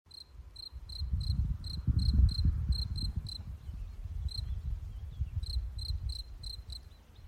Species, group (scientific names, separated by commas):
Gryllus campestris, Orthoptera